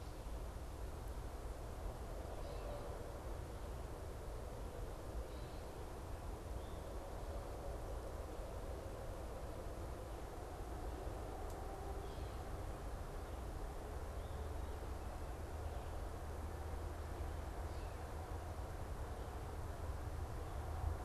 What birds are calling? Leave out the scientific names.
Gray Catbird, Eastern Towhee